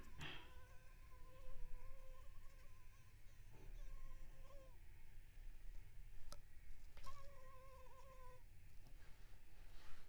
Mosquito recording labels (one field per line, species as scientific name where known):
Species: Anopheles arabiensis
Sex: female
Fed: unfed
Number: one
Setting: cup